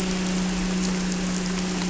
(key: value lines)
label: anthrophony, boat engine
recorder: SoundTrap 300